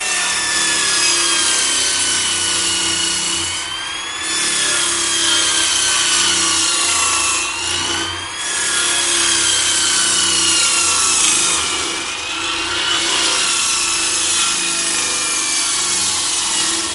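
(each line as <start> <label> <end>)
0.0 A circular saw cutting wood. 16.9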